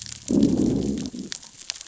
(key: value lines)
label: biophony, growl
recorder: SoundTrap 600 or HydroMoth